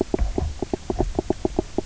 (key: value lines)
label: biophony, knock croak
recorder: SoundTrap 300